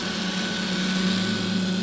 {"label": "anthrophony, boat engine", "recorder": "SoundTrap 500"}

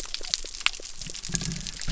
{"label": "biophony", "recorder": "SoundTrap 300"}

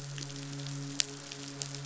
{"label": "biophony, midshipman", "recorder": "SoundTrap 500"}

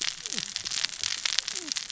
{"label": "biophony, cascading saw", "recorder": "SoundTrap 600 or HydroMoth"}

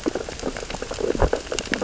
{"label": "biophony, sea urchins (Echinidae)", "recorder": "SoundTrap 600 or HydroMoth"}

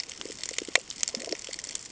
{"label": "ambient", "recorder": "HydroMoth"}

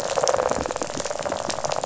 {"label": "biophony, rattle", "recorder": "SoundTrap 500"}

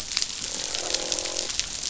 {"label": "biophony, croak", "recorder": "SoundTrap 500"}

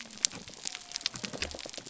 {"label": "biophony", "recorder": "SoundTrap 300"}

